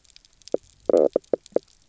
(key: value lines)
label: biophony, knock croak
recorder: SoundTrap 300